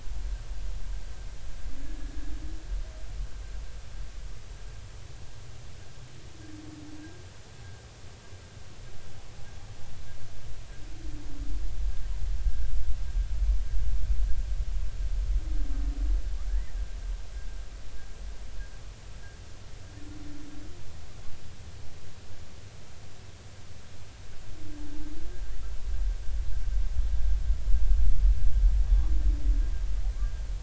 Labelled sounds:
1.8	2.1	humpback whale, 1.6 to 1.7 kHz
16.5	16.8	humpback whale, 1.5 to 2.1 kHz

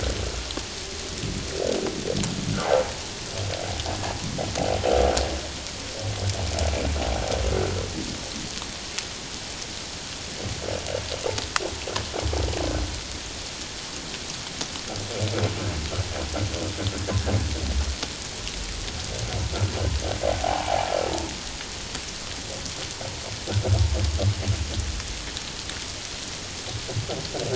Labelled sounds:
20.4	20.9	humpback whale, 0.78 to 1.1 kHz

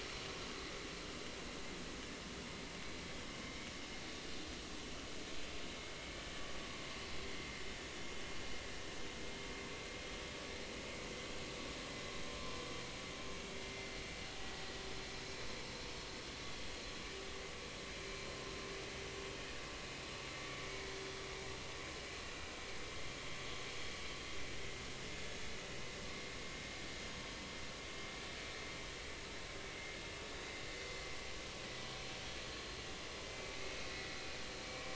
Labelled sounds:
3.4	3.7	vessel noise, 2.1 to 2.3 kHz
13.6	13.9	vessel noise, 2.0 to 2.1 kHz
20.6	20.9	vessel noise, 2.2 to 2.3 kHz
22.9	23.1	vessel noise, 2.08 to 2.14 kHz
31.6	31.9	vessel noise, 1.95 to 2.02 kHz
33.6	34.1	vessel noise, 1.9 to 2.2 kHz

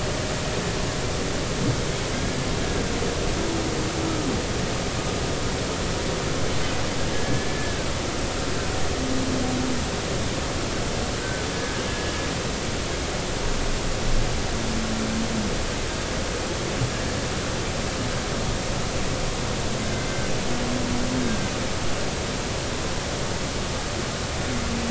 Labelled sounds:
7.1	7.9	humpback whale, 1.5 to 1.8 kHz
11.2	12.1	humpback whale, 1.5 to 1.8 kHz
21.3	21.5	humpback whale, 1.5 to 1.7 kHz

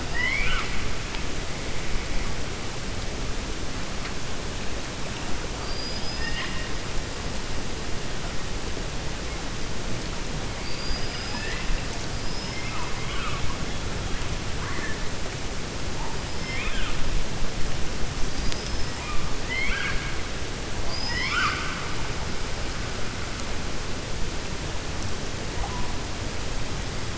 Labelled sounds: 0.0	0.8	killer whale, 0.94 to 5.3 kHz
5.5	6.7	killer whale, 1.0 to 5.1 kHz
16.3	17.0	killer whale, 1.2 to 5.3 kHz
19.4	20.1	killer whale, 1.2 to 4.3 kHz
20.8	21.9	killer whale, 1.0 to 7.0 kHz

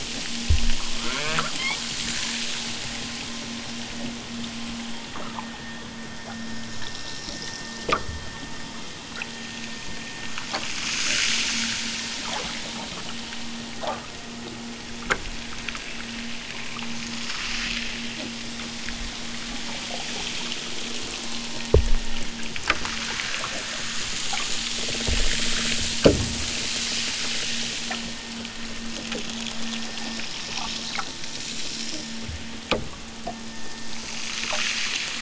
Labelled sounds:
0.8	2.0	killer whale, southern Alaska resident, 0.74 to 5.1 kHz

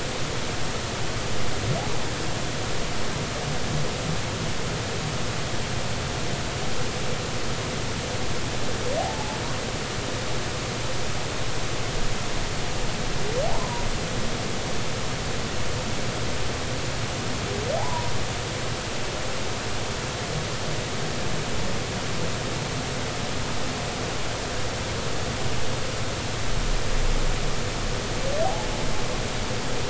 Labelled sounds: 9.0	9.4	humpback whale, 0.80 to 0.93 kHz
13.5	13.9	humpback whale, 0.80 to 1.1 kHz
17.8	18.1	humpback whale, 0.80 to 1.1 kHz
28.4	28.7	humpback whale, 0.80 to 0.99 kHz

